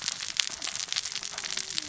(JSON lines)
{"label": "biophony, cascading saw", "recorder": "SoundTrap 600 or HydroMoth"}